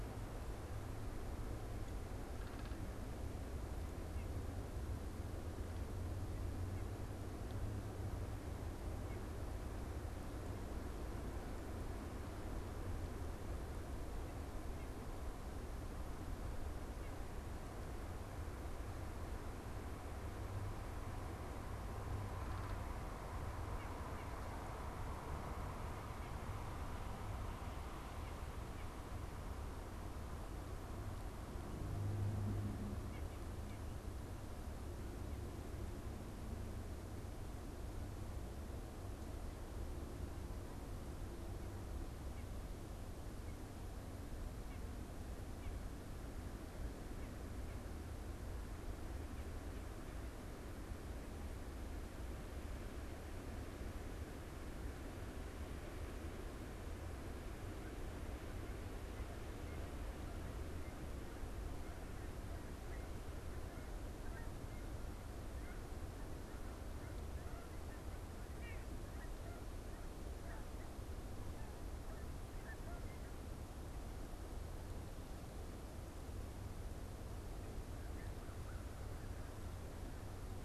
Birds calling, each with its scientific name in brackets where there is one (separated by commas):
Canada Goose (Branta canadensis), American Crow (Corvus brachyrhynchos), White-breasted Nuthatch (Sitta carolinensis)